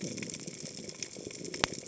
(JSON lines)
{"label": "biophony", "recorder": "HydroMoth"}